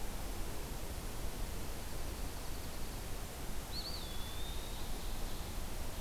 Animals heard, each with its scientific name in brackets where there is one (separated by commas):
Eastern Wood-Pewee (Contopus virens), Dark-eyed Junco (Junco hyemalis)